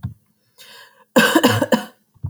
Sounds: Cough